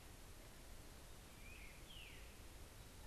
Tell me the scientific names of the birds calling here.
Catharus fuscescens, Myiarchus crinitus